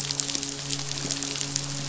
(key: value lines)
label: biophony, midshipman
recorder: SoundTrap 500